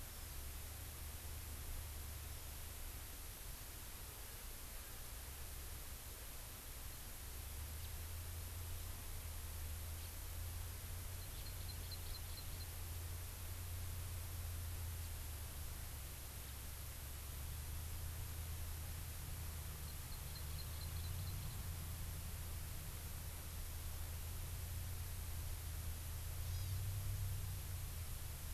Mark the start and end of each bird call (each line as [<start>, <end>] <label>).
[0.09, 0.39] Hawaii Amakihi (Chlorodrepanis virens)
[7.79, 7.89] House Finch (Haemorhous mexicanus)
[11.09, 12.69] Hawaii Amakihi (Chlorodrepanis virens)
[19.79, 21.59] Hawaii Amakihi (Chlorodrepanis virens)
[26.49, 26.79] Hawaii Amakihi (Chlorodrepanis virens)